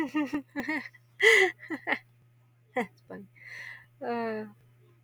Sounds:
Laughter